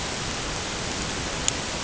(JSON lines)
{"label": "ambient", "recorder": "HydroMoth"}